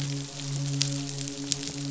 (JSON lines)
{"label": "biophony, midshipman", "recorder": "SoundTrap 500"}